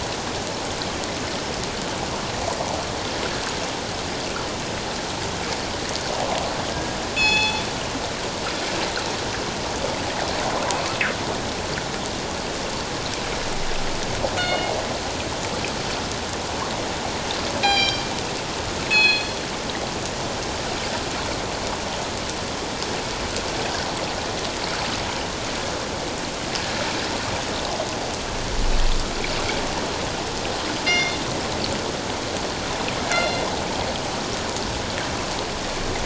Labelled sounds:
6.7	7.6	killer whale, northern resident, G clan, call N24ii, 0.81 to 7.0 kHz
14.4	14.7	killer whale, northern resident, G clan, call N24ii, 2.1 to 4.4 kHz
17.6	18.0	killer whale, northern resident, G clan, call N24ii, 1.6 to 7.3 kHz
18.9	19.3	killer whale, northern resident, G clan, call N24ii, 2.4 to 4.3 kHz
30.8	31.2	killer whale, northern resident, G clan, call N24ii, 2.0 to 5.8 kHz
33.1	33.5	killer whale, northern resident, G clan, call N24ii, 2.0 to 4.2 kHz

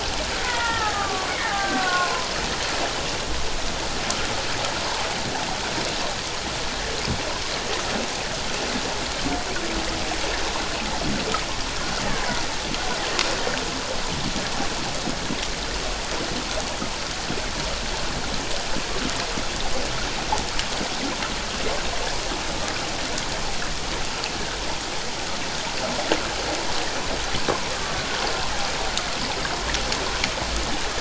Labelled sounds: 0.4	2.3	killer whale, Bigg's (transient), 0.78 to 2.1 kHz
12.1	12.4	killer whale, Bigg's (transient), 0.91 to 1.2 kHz
27.7	28.0	killer whale, Bigg's (transient), 1.1 to 1.2 kHz

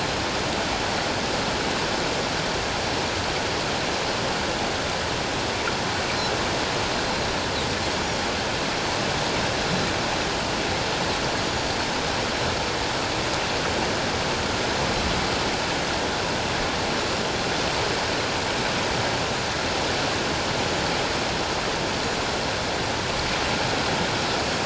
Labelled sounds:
11.4	11.7	Pacific white-sided dolphin, 6.8 to 7.0 kHz

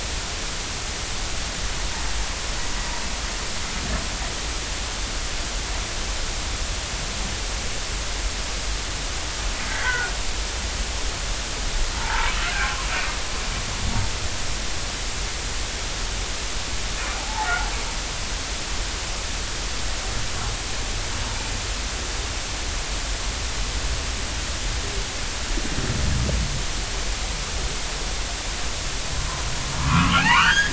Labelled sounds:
9.7	10.1	humpback whale, 1.3 to 2.1 kHz
11.9	12.3	humpback whale, 0.83 to 1.1 kHz
17.2	17.5	humpback whale, 0.80 to 0.96 kHz
29.8	30.7	humpback whale, 0.80 to 3.4 kHz

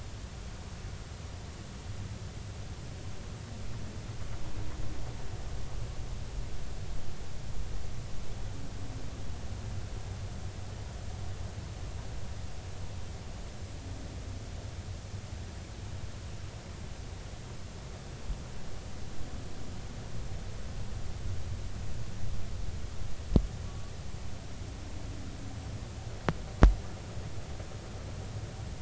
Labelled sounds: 23.7	23.9	humpback whale, 1.1 to 1.2 kHz

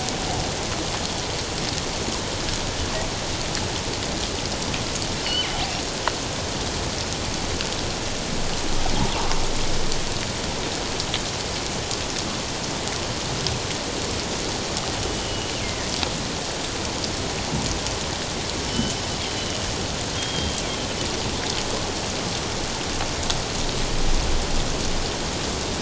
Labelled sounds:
5.2	5.5	killer whale, northern resident, G clan, 2.7 to 5.3 kHz
15.1	15.9	killer whale, northern resident, G clan, 1.8 to 3.0 kHz
18.7	19.7	killer whale, northern resident, G clan, 2.8 to 3.1 kHz
20.2	20.6	killer whale, northern resident, G clan, 3.1 to 3.3 kHz

